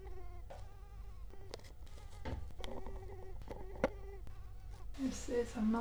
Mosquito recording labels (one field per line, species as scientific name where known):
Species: Culex quinquefasciatus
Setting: cup